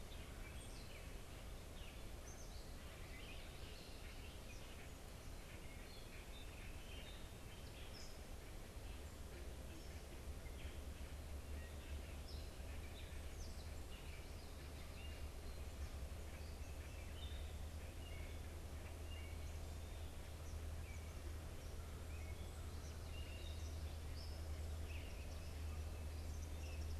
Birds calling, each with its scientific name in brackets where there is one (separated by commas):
Gray Catbird (Dumetella carolinensis), Eastern Kingbird (Tyrannus tyrannus)